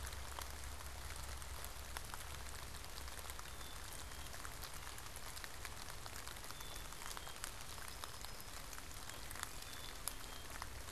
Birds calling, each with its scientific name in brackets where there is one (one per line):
unidentified bird
Black-capped Chickadee (Poecile atricapillus)